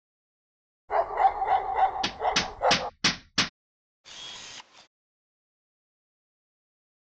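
At 0.88 seconds, a dog barks. While that goes on, at 2.02 seconds, the sound of a hammer is heard. Then, at 4.04 seconds, a camera is faintly audible.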